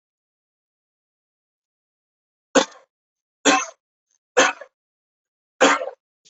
{"expert_labels": [{"quality": "poor", "cough_type": "dry", "dyspnea": false, "wheezing": false, "stridor": false, "choking": false, "congestion": false, "nothing": true, "diagnosis": "COVID-19", "severity": "mild"}], "age": 28, "gender": "male", "respiratory_condition": false, "fever_muscle_pain": false, "status": "symptomatic"}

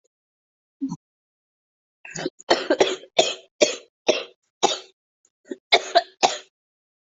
{"expert_labels": [{"quality": "ok", "cough_type": "dry", "dyspnea": false, "wheezing": false, "stridor": false, "choking": false, "congestion": false, "nothing": true, "diagnosis": "COVID-19", "severity": "severe"}], "age": 25, "gender": "female", "respiratory_condition": false, "fever_muscle_pain": true, "status": "symptomatic"}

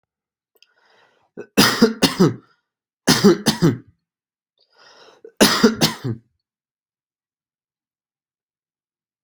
{"expert_labels": [{"quality": "good", "cough_type": "dry", "dyspnea": false, "wheezing": false, "stridor": false, "choking": false, "congestion": false, "nothing": true, "diagnosis": "upper respiratory tract infection", "severity": "mild"}], "age": 26, "gender": "female", "respiratory_condition": false, "fever_muscle_pain": false, "status": "symptomatic"}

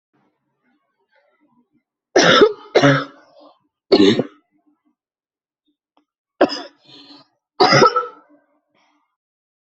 {"expert_labels": [{"quality": "good", "cough_type": "dry", "dyspnea": false, "wheezing": false, "stridor": false, "choking": false, "congestion": false, "nothing": true, "diagnosis": "upper respiratory tract infection", "severity": "severe"}], "age": 34, "gender": "female", "respiratory_condition": false, "fever_muscle_pain": false, "status": "symptomatic"}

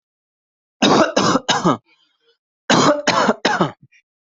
{"expert_labels": [{"quality": "good", "cough_type": "wet", "dyspnea": false, "wheezing": false, "stridor": false, "choking": false, "congestion": false, "nothing": true, "diagnosis": "COVID-19", "severity": "mild"}], "age": 32, "gender": "male", "respiratory_condition": true, "fever_muscle_pain": true, "status": "healthy"}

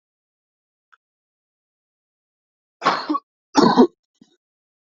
{"expert_labels": [{"quality": "good", "cough_type": "dry", "dyspnea": false, "wheezing": false, "stridor": false, "choking": false, "congestion": false, "nothing": true, "diagnosis": "upper respiratory tract infection", "severity": "mild"}], "age": 25, "gender": "male", "respiratory_condition": false, "fever_muscle_pain": false, "status": "symptomatic"}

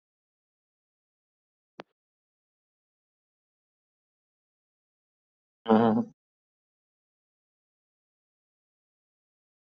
{"expert_labels": [{"quality": "no cough present", "cough_type": "unknown", "dyspnea": false, "wheezing": false, "stridor": false, "choking": false, "congestion": false, "nothing": true, "diagnosis": "healthy cough", "severity": "pseudocough/healthy cough"}]}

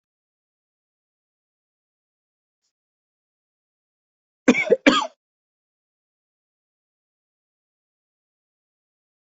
{"expert_labels": [{"quality": "ok", "cough_type": "dry", "dyspnea": false, "wheezing": false, "stridor": false, "choking": false, "congestion": false, "nothing": true, "diagnosis": "lower respiratory tract infection", "severity": "mild"}], "age": 48, "gender": "male", "respiratory_condition": false, "fever_muscle_pain": false, "status": "healthy"}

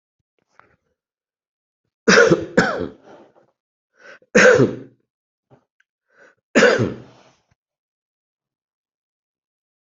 {"expert_labels": [{"quality": "ok", "cough_type": "dry", "dyspnea": false, "wheezing": false, "stridor": false, "choking": false, "congestion": false, "nothing": true, "diagnosis": "healthy cough", "severity": "pseudocough/healthy cough"}], "age": 50, "gender": "male", "respiratory_condition": false, "fever_muscle_pain": false, "status": "healthy"}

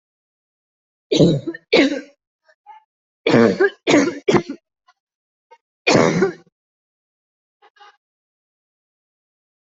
{"expert_labels": [{"quality": "good", "cough_type": "dry", "dyspnea": false, "wheezing": false, "stridor": false, "choking": false, "congestion": false, "nothing": true, "diagnosis": "COVID-19", "severity": "mild"}], "age": 48, "gender": "female", "respiratory_condition": false, "fever_muscle_pain": false, "status": "healthy"}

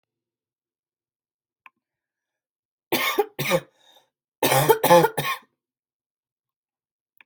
{"expert_labels": [{"quality": "good", "cough_type": "dry", "dyspnea": false, "wheezing": false, "stridor": false, "choking": false, "congestion": false, "nothing": true, "diagnosis": "upper respiratory tract infection", "severity": "mild"}], "age": 19, "gender": "female", "respiratory_condition": false, "fever_muscle_pain": false, "status": "symptomatic"}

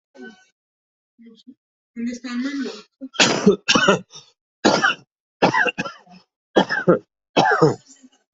{"expert_labels": [{"quality": "ok", "cough_type": "wet", "dyspnea": false, "wheezing": false, "stridor": false, "choking": false, "congestion": false, "nothing": true, "diagnosis": "lower respiratory tract infection", "severity": "mild"}], "age": 49, "gender": "male", "respiratory_condition": false, "fever_muscle_pain": false, "status": "COVID-19"}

